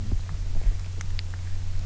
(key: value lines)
label: anthrophony, boat engine
recorder: SoundTrap 300